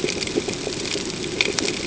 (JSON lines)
{"label": "ambient", "recorder": "HydroMoth"}